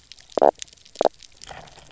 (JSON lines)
{"label": "biophony, knock croak", "recorder": "SoundTrap 300"}